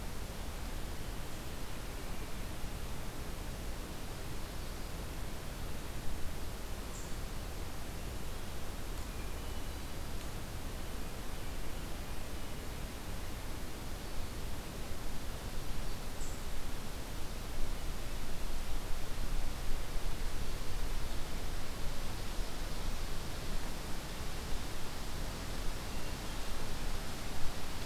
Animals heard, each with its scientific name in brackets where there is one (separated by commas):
Hermit Thrush (Catharus guttatus), Ovenbird (Seiurus aurocapilla), Brown Creeper (Certhia americana)